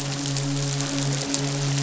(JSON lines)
{"label": "biophony, midshipman", "recorder": "SoundTrap 500"}